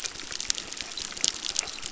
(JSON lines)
{"label": "biophony, crackle", "recorder": "SoundTrap 600"}